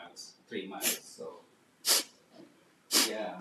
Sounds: Sniff